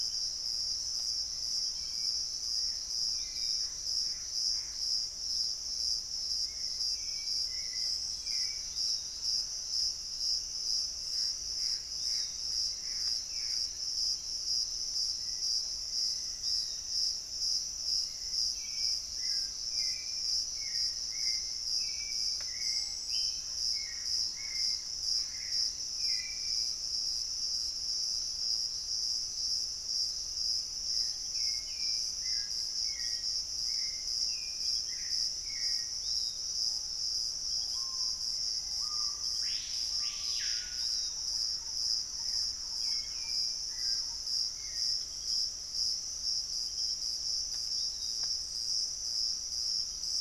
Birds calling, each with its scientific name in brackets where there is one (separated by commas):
Black-faced Antthrush (Formicarius analis), Hauxwell's Thrush (Turdus hauxwelli), Piratic Flycatcher (Legatus leucophaius), Gray Antbird (Cercomacra cinerascens), Screaming Piha (Lipaugus vociferans), Olivaceous Woodcreeper (Sittasomus griseicapillus), Thrush-like Wren (Campylorhynchus turdinus)